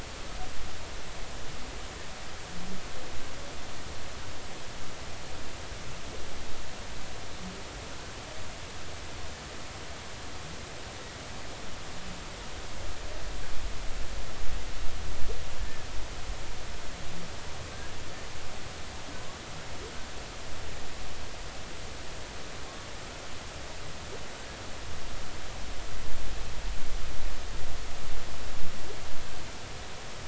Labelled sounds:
15.6	15.9	humpback whale, 1.7 to 1.8 kHz

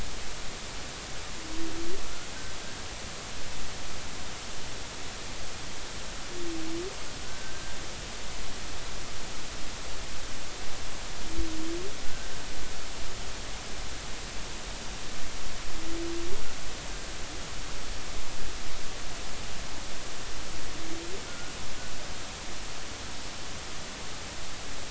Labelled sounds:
7.2	7.8	humpback whale, 1.4 to 1.6 kHz
12.1	12.3	humpback whale, 1.4 to 1.7 kHz
21.3	21.5	humpback whale, 1.3 to 1.5 kHz

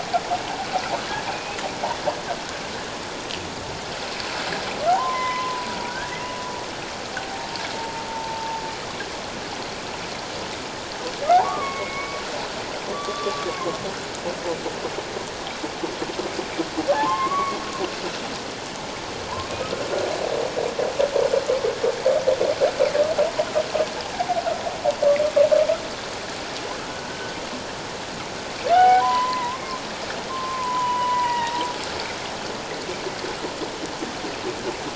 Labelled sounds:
1.2	1.6	humpback whale, 2.3 to 2.6 kHz
4.9	5.8	humpback whale, 0.78 to 2.1 kHz
7.1	8.6	humpback whale, 0.78 to 0.97 kHz
11.4	12.2	humpback whale, 0.94 to 2.3 kHz
12.9	13.8	humpback whale, 1.0 to 3.5 kHz
16.9	17.6	humpback whale, 0.78 to 2.3 kHz
27.1	27.3	humpback whale, 1.5 to 1.6 kHz
28.7	29.8	humpback whale, 0.78 to 2.3 kHz
30.3	31.6	humpback whale, 0.81 to 3.0 kHz

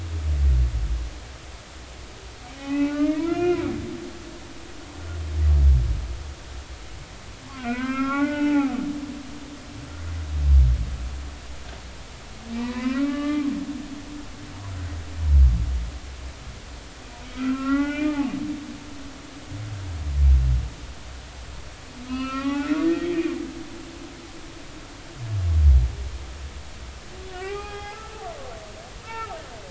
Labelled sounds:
2.5	3.6	humpback whale, 0.80 to 3.2 kHz
7.6	8.8	humpback whale, 0.80 to 3.0 kHz
12.6	13.5	humpback whale, 0.86 to 3.8 kHz
17.3	18.3	humpback whale, 0.80 to 3.1 kHz
22.0	23.3	humpback whale, 0.80 to 4.9 kHz
27.3	28.2	humpback whale, 0.80 to 3.4 kHz
29.0	29.4	humpback whale, 1.2 to 1.9 kHz

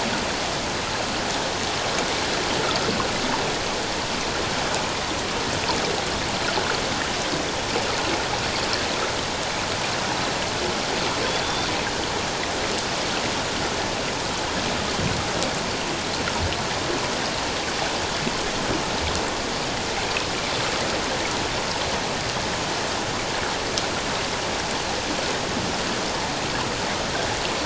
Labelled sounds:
11.4	11.7	Pacific white-sided dolphin, 3.5 to 3.6 kHz

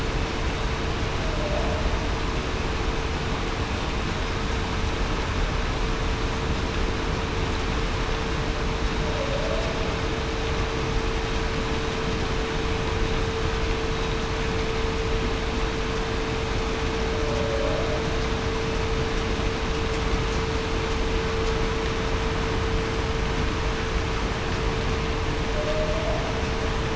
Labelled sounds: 9.1	9.5	humpback whale, 0.52 to 0.68 kHz
17.1	17.6	humpback whale, 0.52 to 0.63 kHz
25.5	26.0	humpback whale, 0.56 to 0.68 kHz

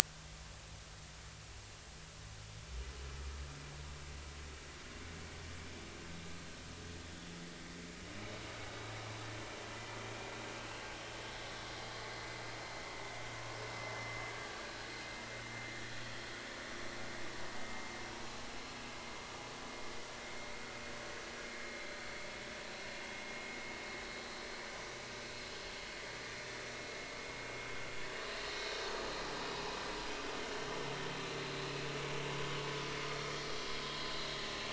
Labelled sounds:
10.6	10.8	vessel noise, 2.5 to 2.8 kHz
14.3	14.6	vessel noise, 1.6 to 1.7 kHz
21.6	22.3	vessel noise, 2.1 to 4.2 kHz
32.6	33.0	vessel noise, 5.9 to 6.1 kHz

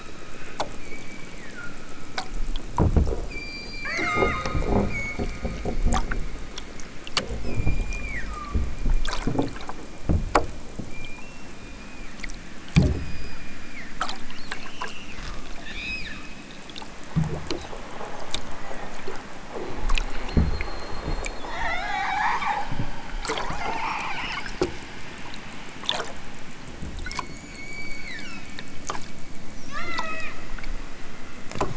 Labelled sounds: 0.7	2.2	killer whale, southern Alaska resident, 1.1 to 5.0 kHz
3.2	4.6	killer whale, southern Alaska resident, 0.18 to 8.0 kHz
7.3	8.7	killer whale, southern Alaska resident, 0.83 to 7.9 kHz
10.8	12.5	killer whale, southern Alaska resident, 1.1 to 5.9 kHz
12.8	14.1	killer whale, southern Alaska resident, 1.3 to 8.0 kHz
27.0	28.5	killer whale, southern Alaska resident, 0.64 to 7.2 kHz
29.6	30.4	killer whale, southern Alaska resident, 0.78 to 8.0 kHz

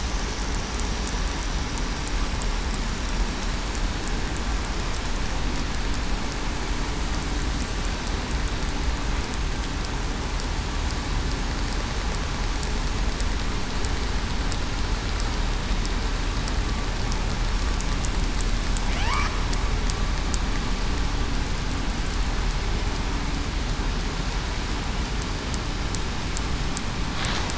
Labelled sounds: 18.9	19.3	killer whale, southern resident, 0.66 to 1.3 kHz

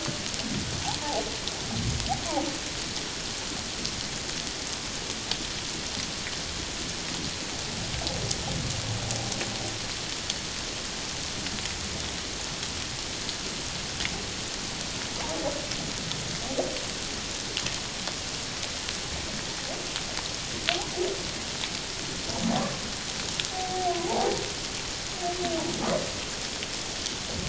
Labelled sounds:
23.5	24.4	humpback whale, 0.78 to 1.1 kHz

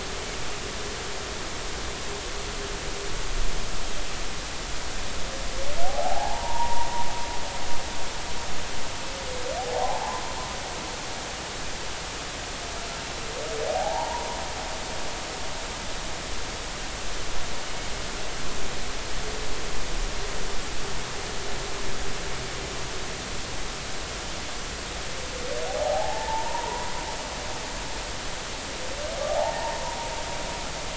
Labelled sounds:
5.8	6.9	humpback whale, 0.80 to 1.1 kHz
9.6	10.2	humpback whale, 0.80 to 1.1 kHz
13.7	14.3	humpback whale, 0.80 to 1.0 kHz
25.7	26.9	humpback whale, 0.80 to 1.0 kHz
29.3	29.8	humpback whale, 0.80 to 1.0 kHz

